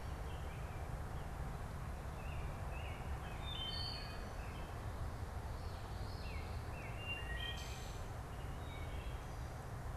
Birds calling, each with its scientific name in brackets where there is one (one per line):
Wood Thrush (Hylocichla mustelina)
American Robin (Turdus migratorius)